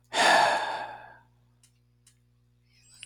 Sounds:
Sigh